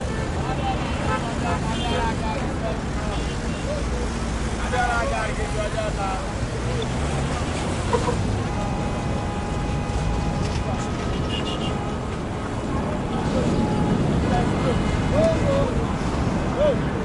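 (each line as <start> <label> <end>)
0.0 Different vehicles driving outdoors. 17.0
0.7 A car horn honks repeatedly. 2.5
4.7 A man is talking outdoors. 6.9
4.7 A horn honks. 5.5
9.3 A car horn honks repeatedly. 17.0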